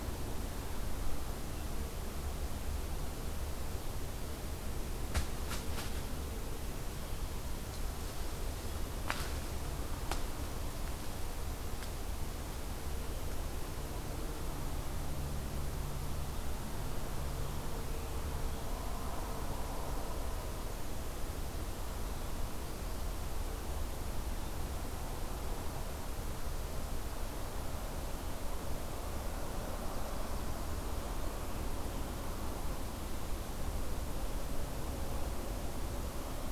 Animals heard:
forest ambience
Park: Marsh-Billings-Rockefeller National Historical Park